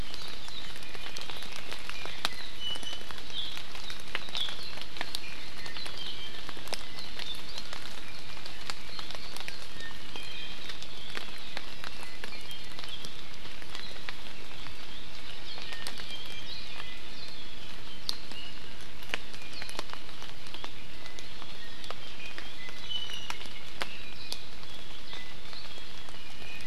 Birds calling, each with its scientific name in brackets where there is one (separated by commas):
Iiwi (Drepanis coccinea)